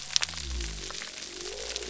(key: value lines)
label: biophony
recorder: SoundTrap 300